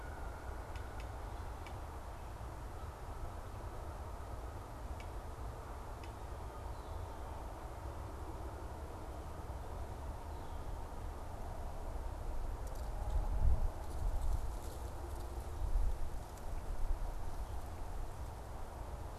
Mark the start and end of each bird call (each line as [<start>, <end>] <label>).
[0.00, 2.66] Canada Goose (Branta canadensis)